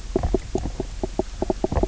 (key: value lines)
label: biophony, knock croak
recorder: SoundTrap 300